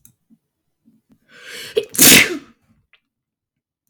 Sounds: Sneeze